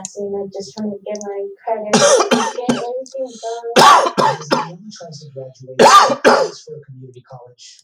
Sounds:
Cough